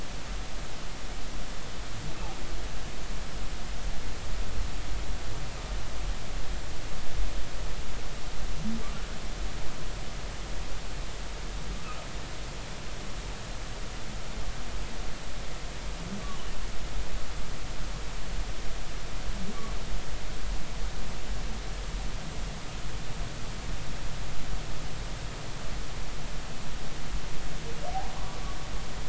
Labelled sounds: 16.2	16.5	humpback whale, 0.90 to 1.2 kHz

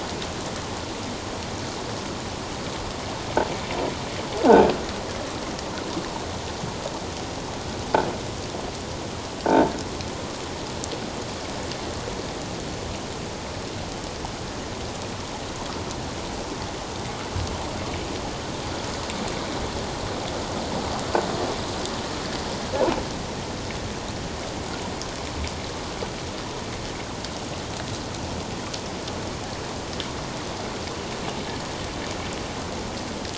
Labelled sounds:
9.5	9.7	croaking sound likely from a nearby submerged object, 0.84 to 0.94 kHz

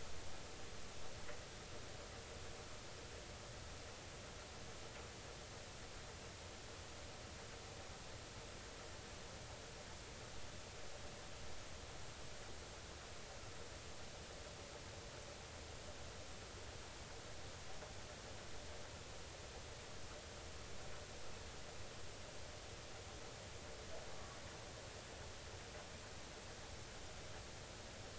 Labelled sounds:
24.1	24.4	humpback whale, 1.1 to 1.2 kHz

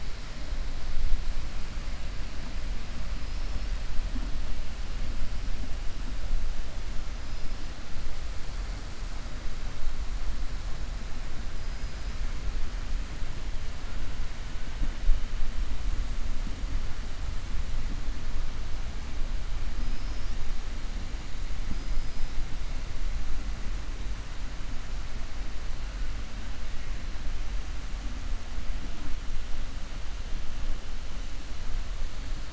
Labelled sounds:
21.7	22.3	killer whale, 4.9 to 5.2 kHz

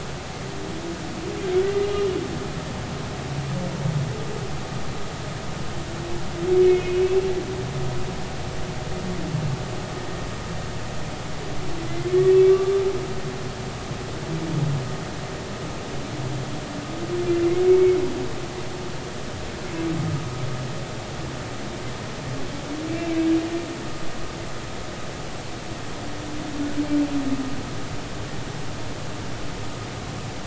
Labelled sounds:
12.1	12.4	humpback whale, 1.8 to 1.9 kHz
17.7	18.0	humpback whale, 2.1 to 2.3 kHz
22.9	23.2	humpback whale, 2.3 to 2.4 kHz

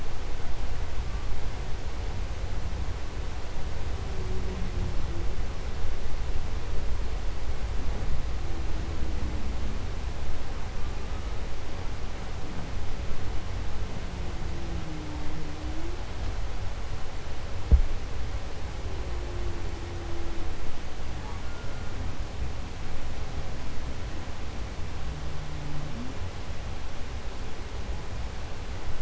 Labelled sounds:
3.8	5.5	humpback whale, 0.13 to 0.78 kHz
10.4	11.7	humpback whale, 0.45 to 2.9 kHz
13.8	16.3	humpback whale, 0.19 to 0.69 kHz
18.4	22.0	humpback whale, 0.09 to 1.9 kHz
24.9	26.2	humpback whale, 0.04 to 0.63 kHz

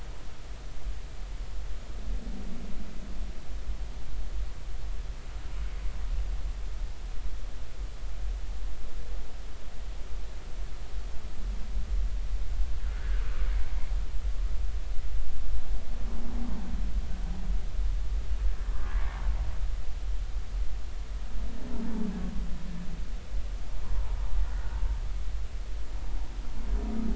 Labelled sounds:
12.8	13.2	humpback whale, 1.4 to 1.8 kHz
23.8	24.2	humpback whale, 0.83 to 1.1 kHz
24.6	24.8	humpback whale, 1.4 to 1.6 kHz

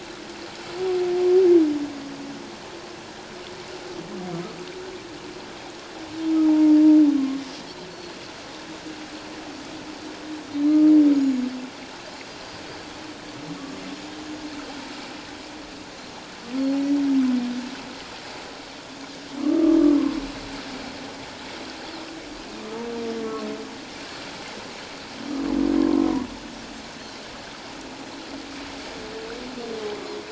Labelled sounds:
6.5	6.8	humpback whale, 0.78 to 0.97 kHz
7.9	8.2	Pacific white-sided dolphin, 4.2 to 4.5 kHz
10.5	10.8	Pacific white-sided dolphin, 4.0 to 4.2 kHz
11.1	11.4	Pacific white-sided dolphin, 6.5 to 6.9 kHz
19.4	19.8	humpback whale, 1.0 to 1.3 kHz
27.0	27.2	Pacific white-sided dolphin, 3.9 to 4.3 kHz

